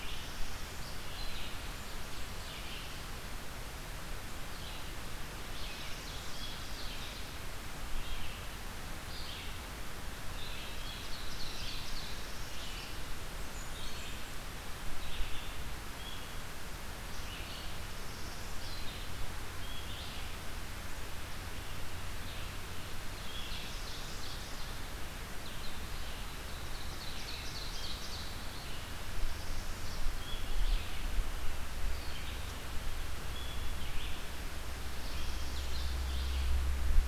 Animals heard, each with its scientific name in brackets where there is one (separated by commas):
Blackburnian Warbler (Setophaga fusca), Ovenbird (Seiurus aurocapilla), Northern Parula (Setophaga americana), Red-eyed Vireo (Vireo olivaceus)